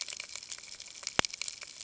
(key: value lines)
label: ambient
recorder: HydroMoth